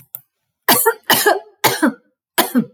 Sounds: Cough